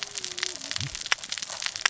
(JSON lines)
{"label": "biophony, cascading saw", "recorder": "SoundTrap 600 or HydroMoth"}